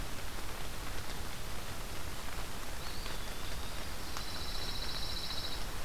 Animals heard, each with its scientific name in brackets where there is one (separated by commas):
Pine Warbler (Setophaga pinus), Eastern Wood-Pewee (Contopus virens)